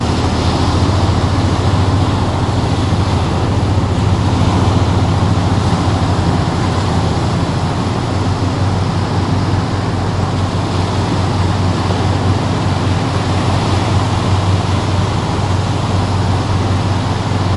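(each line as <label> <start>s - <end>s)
Ocean waves are heard faintly in the background. 0.0s - 17.6s
A continuous low-pitched engine rumbling. 0.0s - 17.6s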